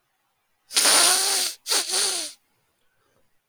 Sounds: Sniff